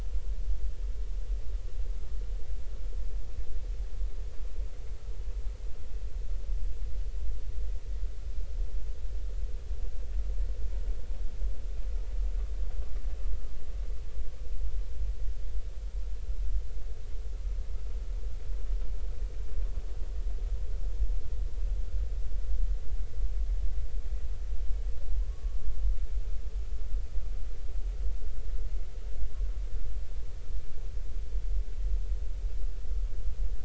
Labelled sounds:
25.3	25.6	humpback whale, 1.1 to 1.2 kHz

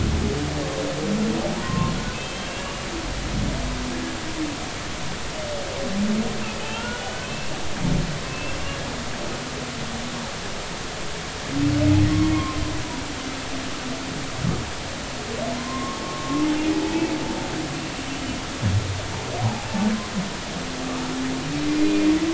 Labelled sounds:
1.6	2.9	humpback whale, 0.99 to 3.2 kHz
6.4	7.2	humpback whale, 1.3 to 3.0 kHz
8.2	8.6	humpback whale, 2.6 to 2.8 kHz
12.3	12.6	humpback whale, 0.96 to 1.1 kHz
15.6	16.4	humpback whale, 0.99 to 1.2 kHz
16.8	17.1	humpback whale, 2.5 to 2.7 kHz
19.4	19.7	humpback whale, 0.80 to 1.1 kHz

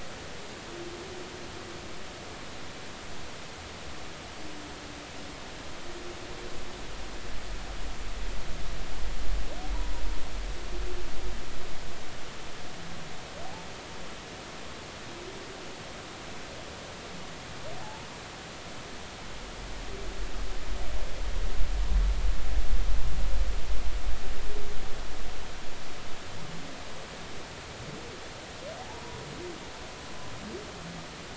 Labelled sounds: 17.8	18.1	humpback whale, 0.80 to 0.96 kHz
28.8	29.2	humpback whale, 0.80 to 1.0 kHz

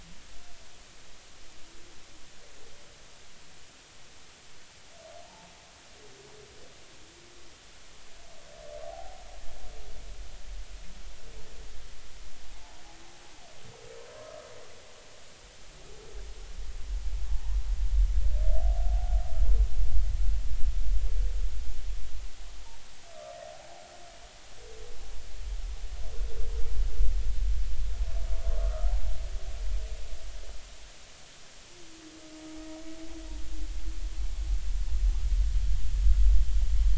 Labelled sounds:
5.2	5.5	humpback whale, 0.83 to 0.96 kHz
8.8	9.2	humpback whale, 0.80 to 0.86 kHz
12.5	12.8	humpback whale, 0.80 to 1.0 kHz
28.5	28.9	humpback whale, 1.0 to 1.4 kHz

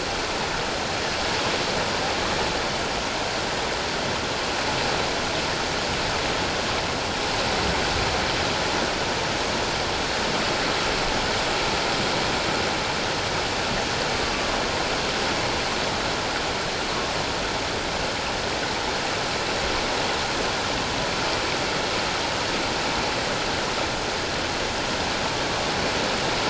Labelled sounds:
14.1	14.5	humpback whale, 1.1 to 1.2 kHz

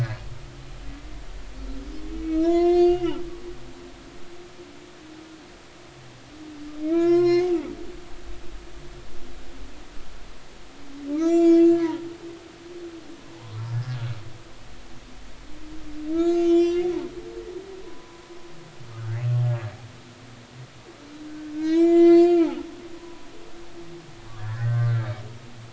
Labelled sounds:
1.7	3.1	humpback whale, 0.93 to 7.0 kHz
6.8	7.5	humpback whale, 0.96 to 6.7 kHz
11.1	12.0	humpback whale, 0.86 to 7.5 kHz
13.3	13.7	humpback whale, 0.80 to 1.2 kHz
16.1	16.9	humpback whale, 1.3 to 7.7 kHz
17.8	18.2	humpback whale, 0.96 to 1.1 kHz
21.5	22.6	humpback whale, 0.96 to 8.0 kHz
24.3	24.9	humpback whale, 1.3 to 2.0 kHz

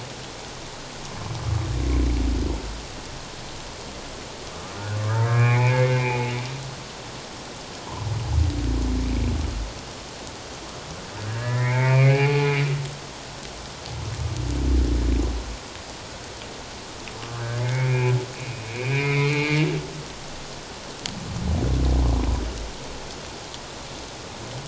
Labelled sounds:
5.3	6.3	humpback whale, 0.81 to 2.6 kHz
11.3	12.6	humpback whale, 0.78 to 2.6 kHz
17.6	19.6	humpback whale, 1.1 to 2.8 kHz

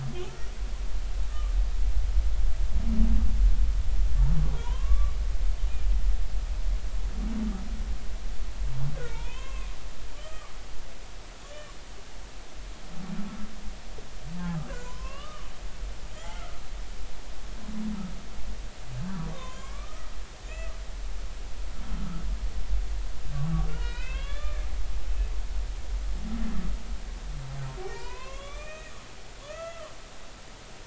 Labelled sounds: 2.3	2.5	humpback whale, 1.1 to 1.3 kHz
4.6	5.1	humpback whale, 0.90 to 1.2 kHz
9.0	9.7	humpback whale, 0.86 to 3.8 kHz
10.2	10.5	humpback whale, 1.1 to 1.3 kHz
14.7	15.5	humpback whale, 0.93 to 6.0 kHz
16.1	16.5	humpback whale, 1.8 to 2.2 kHz
19.3	20.1	humpback whale, 0.96 to 3.3 kHz
20.4	20.7	humpback whale, 2.4 to 2.7 kHz
23.7	24.6	humpback whale, 0.93 to 4.4 kHz
27.8	28.9	humpback whale, 0.90 to 6.2 kHz
29.4	29.9	humpback whale, 0.99 to 6.8 kHz

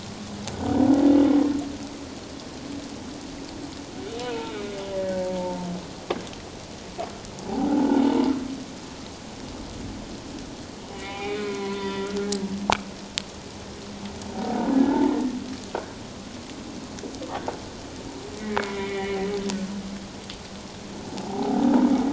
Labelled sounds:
4.2	5.7	humpback whale, 0.84 to 1.7 kHz
7.5	8.2	humpback whale, 0.78 to 3.0 kHz
10.9	12.3	humpback whale, 0.78 to 3.7 kHz
18.4	19.2	humpback whale, 1.8 to 3.0 kHz
21.1	21.6	humpback whale, 0.78 to 1.0 kHz

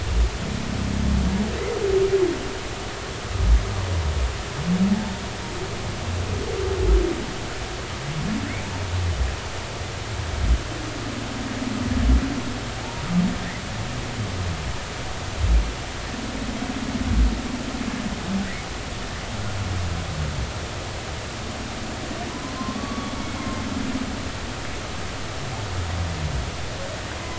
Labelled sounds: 22.6	23.1	humpback whale, 0.99 to 1.2 kHz

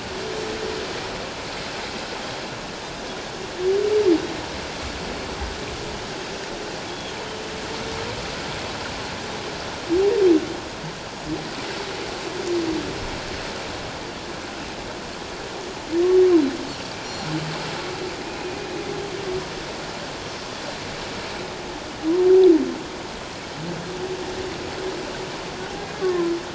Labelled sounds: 6.9	7.2	Pacific white-sided dolphin, 3.2 to 3.4 kHz
17.0	17.3	Pacific white-sided dolphin, 5.5 to 5.8 kHz
26.0	26.3	humpback whale, 0.97 to 1.2 kHz

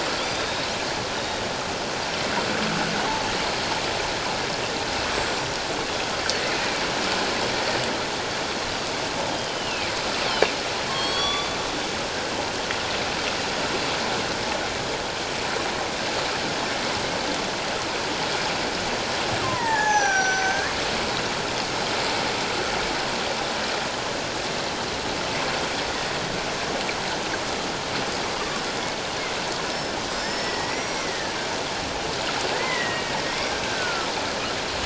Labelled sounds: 0.2	0.8	killer whale, northern resident, G clan, 3.2 to 5.0 kHz
1.1	1.4	killer whale, northern resident, G clan, 3.7 to 3.9 kHz
5.1	5.4	killer whale, northern resident, G clan, 7.1 to 7.8 kHz
6.5	6.9	killer whale, northern resident, G clan, 2.2 to 2.5 kHz
9.3	9.9	killer whale, northern resident, G clan, 2.2 to 3.3 kHz
10.9	11.6	killer whale, northern resident, G clan, 1.1 to 5.8 kHz
19.4	20.7	killer whale, northern resident, G clan, 0.78 to 6.8 kHz
29.7	31.3	killer whale, northern resident, G clan, 1.6 to 5.9 kHz
32.5	34.1	killer whale, northern resident, G clan, 1.2 to 2.1 kHz

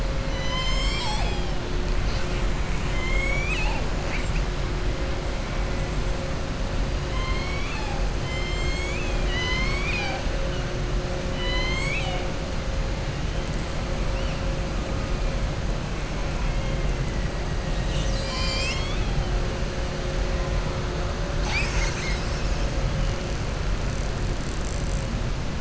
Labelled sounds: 0.2	1.5	killer whale, southern resident, 0.80 to 7.9 kHz
2.8	3.8	killer whale, southern resident, 0.83 to 7.9 kHz
7.1	10.2	killer whale, southern resident, 0.82 to 7.7 kHz
11.3	12.2	killer whale, southern resident, 0.77 to 7.9 kHz
21.3	22.6	killer whale, southern resident, 0.89 to 7.9 kHz

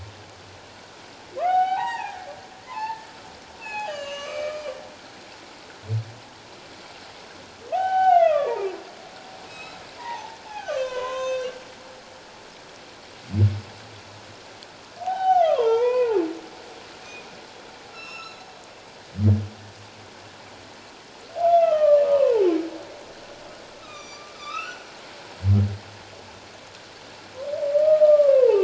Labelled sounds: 1.4	2.2	humpback whale, 0.78 to 4.8 kHz
2.7	4.7	humpback whale, 0.78 to 6.5 kHz
7.7	8.6	humpback whale, 0.78 to 3.1 kHz
9.5	11.5	humpback whale, 0.78 to 6.5 kHz
15.0	16.3	humpback whale, 0.78 to 3.9 kHz
17.9	18.4	humpback whale, 1.2 to 8.0 kHz
21.4	22.5	humpback whale, 0.81 to 3.2 kHz
23.8	24.9	humpback whale, 1.1 to 7.1 kHz
27.7	28.6	humpback whale, 0.81 to 1.3 kHz

